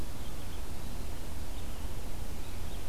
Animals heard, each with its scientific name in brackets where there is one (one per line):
Red-eyed Vireo (Vireo olivaceus)